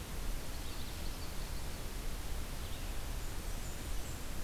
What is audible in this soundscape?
Common Yellowthroat, Blackburnian Warbler